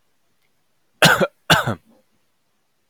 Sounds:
Cough